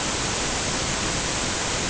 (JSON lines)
{"label": "ambient", "recorder": "HydroMoth"}